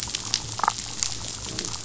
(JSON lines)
{"label": "biophony, damselfish", "recorder": "SoundTrap 500"}